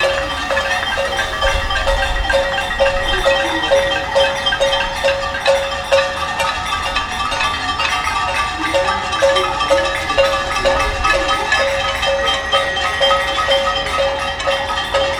is there a jingling?
yes